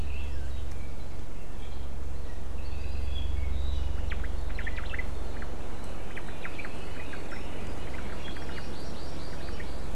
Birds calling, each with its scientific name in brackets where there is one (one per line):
Apapane (Himatione sanguinea)
Omao (Myadestes obscurus)
Hawaii Amakihi (Chlorodrepanis virens)